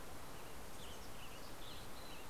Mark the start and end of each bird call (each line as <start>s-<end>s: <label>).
0.0s-2.3s: Western Tanager (Piranga ludoviciana)
0.6s-2.3s: Mountain Chickadee (Poecile gambeli)